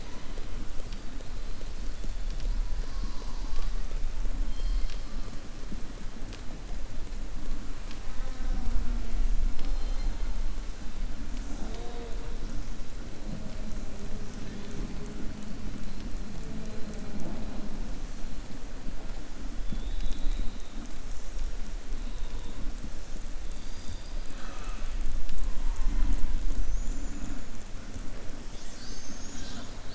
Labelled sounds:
23.5	25.0	killer whale, southern resident, 0.61 to 5.0 kHz

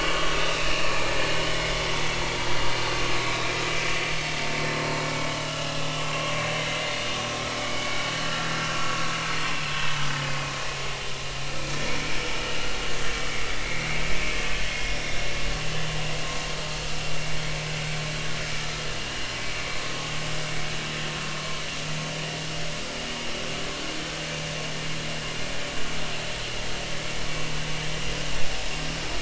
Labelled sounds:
0.6	1.1	vessel noise, 2.3 to 2.9 kHz
3.3	3.5	vessel noise, 3.7 to 4.0 kHz
5.2	5.8	vessel noise, 2.8 to 3.1 kHz
6.7	8.1	vessel noise, 2.0 to 2.3 kHz
12.4	12.7	vessel noise, 2.8 to 3.0 kHz
13.6	15.2	vessel noise, 2.0 to 3.8 kHz
18.5	18.8	vessel noise, 1.2 to 1.4 kHz

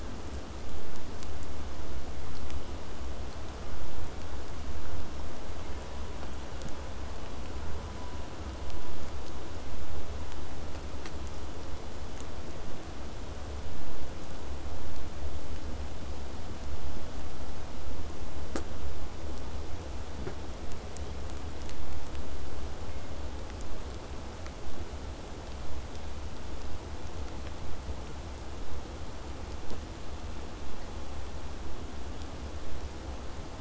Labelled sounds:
28.6	33.5	vessel noise, 0 to 8.0 kHz

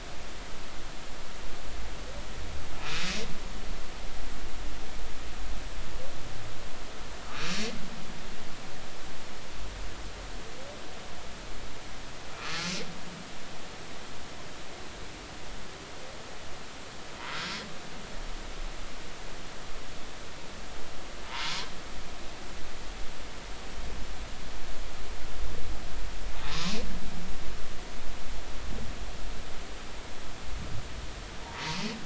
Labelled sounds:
12.3	12.7	humpback whale, 1.1 to 1.4 kHz
21.3	21.6	humpback whale, 0.86 to 1.2 kHz

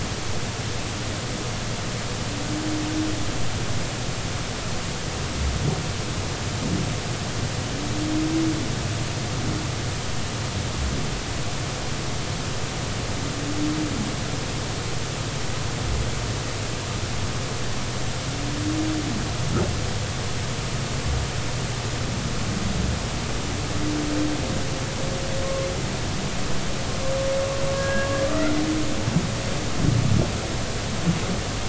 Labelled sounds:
27.7	28.5	humpback whale, 1.2 to 1.7 kHz

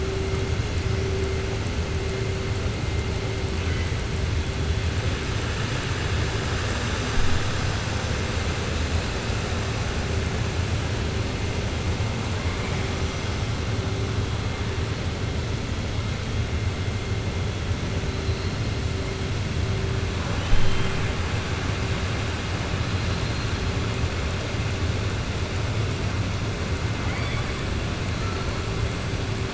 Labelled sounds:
20.3	21.1	killer whale, southern resident, 1.1 to 4.1 kHz
27.0	27.6	killer whale, southern resident, 0.80 to 5.1 kHz

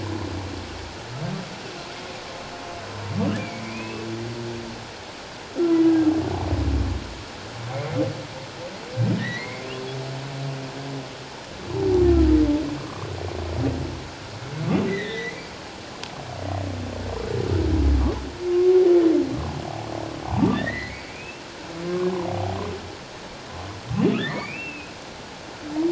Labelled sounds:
3.4	4.1	humpback whale, 2.1 to 2.8 kHz
9.2	9.6	humpback whale, 1.8 to 4.0 kHz
12.8	13.1	humpback whale, 1.0 to 1.2 kHz
14.9	15.4	humpback whale, 1.7 to 4.1 kHz
18.5	18.8	humpback whale, 1.0 to 1.1 kHz
20.5	21.4	humpback whale, 1.7 to 3.9 kHz
22.3	22.6	humpback whale, 0.78 to 0.84 kHz
24.2	24.9	humpback whale, 1.6 to 4.8 kHz

